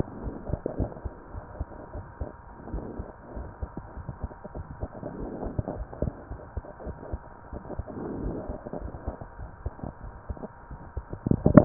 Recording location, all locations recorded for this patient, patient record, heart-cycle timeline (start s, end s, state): pulmonary valve (PV)
aortic valve (AV)+pulmonary valve (PV)+tricuspid valve (TV)+mitral valve (MV)
#Age: Child
#Sex: Female
#Height: 121.0 cm
#Weight: 25.6 kg
#Pregnancy status: False
#Murmur: Unknown
#Murmur locations: nan
#Most audible location: nan
#Systolic murmur timing: nan
#Systolic murmur shape: nan
#Systolic murmur grading: nan
#Systolic murmur pitch: nan
#Systolic murmur quality: nan
#Diastolic murmur timing: nan
#Diastolic murmur shape: nan
#Diastolic murmur grading: nan
#Diastolic murmur pitch: nan
#Diastolic murmur quality: nan
#Outcome: Normal
#Campaign: 2015 screening campaign
0.00	1.32	unannotated
1.32	1.44	S1
1.44	1.56	systole
1.56	1.70	S2
1.70	1.91	diastole
1.91	2.08	S1
2.08	2.19	systole
2.19	2.33	S2
2.33	2.68	diastole
2.68	2.84	S1
2.84	2.96	systole
2.96	3.06	S2
3.06	3.34	diastole
3.34	3.48	S1
3.48	3.59	systole
3.59	3.70	S2
3.70	3.93	diastole
3.93	4.08	S1
4.08	4.19	systole
4.19	4.32	S2
4.32	4.52	diastole
4.52	4.66	S1
4.66	4.79	systole
4.79	4.90	S2
4.90	5.18	diastole
5.18	5.30	S1
5.30	5.41	systole
5.41	5.56	S2
5.56	5.74	diastole
5.74	5.88	S1
5.88	5.98	systole
5.98	6.10	S2
6.10	6.27	diastole
6.27	6.40	S1
6.40	6.52	systole
6.52	6.66	S2
6.66	6.82	diastole
6.82	6.96	S1
6.96	7.08	systole
7.08	7.24	S2
7.24	7.50	diastole
7.50	7.64	S1
7.64	7.75	systole
7.75	7.90	S2
7.90	8.18	diastole
8.18	8.34	S1
8.34	11.65	unannotated